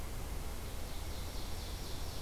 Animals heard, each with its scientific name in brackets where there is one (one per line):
Ovenbird (Seiurus aurocapilla)